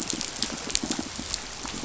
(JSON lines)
{"label": "biophony, pulse", "recorder": "SoundTrap 500"}